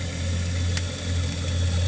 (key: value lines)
label: anthrophony, boat engine
recorder: HydroMoth